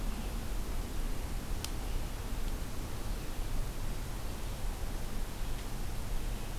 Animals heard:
Red-eyed Vireo (Vireo olivaceus)

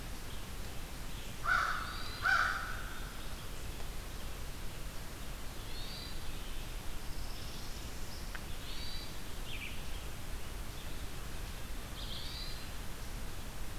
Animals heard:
Hermit Thrush (Catharus guttatus)
Northern Parula (Setophaga americana)
Red-eyed Vireo (Vireo olivaceus)
American Crow (Corvus brachyrhynchos)

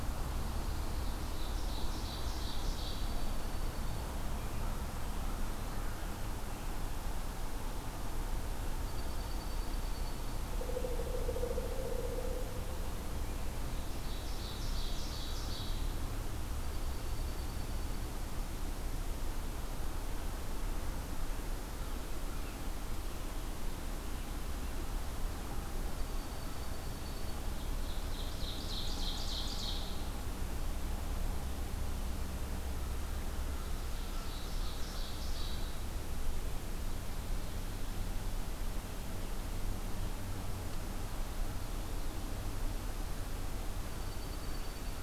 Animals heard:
Pileated Woodpecker (Dryocopus pileatus)
American Crow (Corvus brachyrhynchos)
Dark-eyed Junco (Junco hyemalis)
Pine Warbler (Setophaga pinus)
Ovenbird (Seiurus aurocapilla)

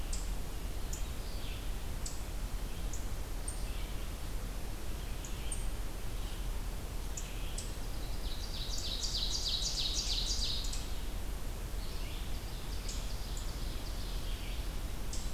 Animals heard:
Red-eyed Vireo (Vireo olivaceus)
Ovenbird (Seiurus aurocapilla)

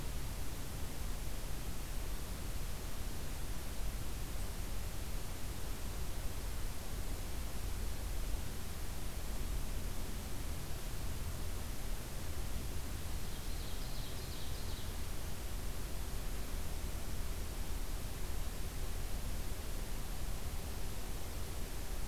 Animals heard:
Ovenbird (Seiurus aurocapilla)

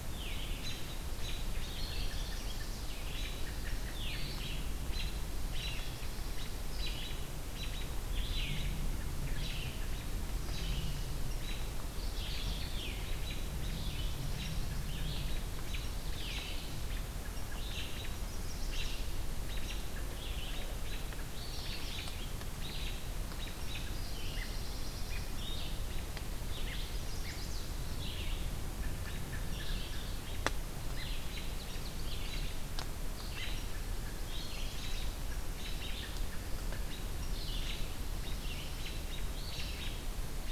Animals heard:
Chestnut-sided Warbler (Setophaga pensylvanica)
Mourning Warbler (Geothlypis philadelphia)
Pine Warbler (Setophaga pinus)
Hermit Thrush (Catharus guttatus)
Ovenbird (Seiurus aurocapilla)
Red-eyed Vireo (Vireo olivaceus)

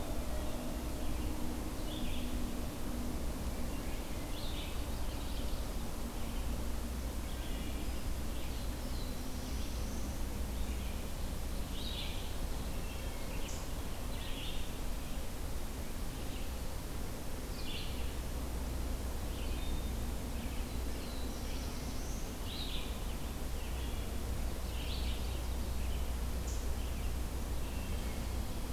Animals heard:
Wood Thrush (Hylocichla mustelina)
Black-throated Blue Warbler (Setophaga caerulescens)
Red-eyed Vireo (Vireo olivaceus)

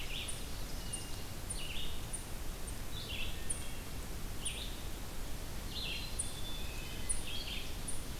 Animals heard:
Black-capped Chickadee (Poecile atricapillus)
Ovenbird (Seiurus aurocapilla)
Red-eyed Vireo (Vireo olivaceus)
Eastern Chipmunk (Tamias striatus)

